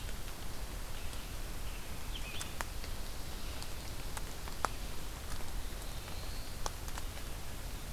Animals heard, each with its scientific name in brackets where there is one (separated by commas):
Scarlet Tanager (Piranga olivacea), Black-throated Blue Warbler (Setophaga caerulescens)